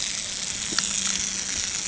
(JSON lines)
{"label": "anthrophony, boat engine", "recorder": "HydroMoth"}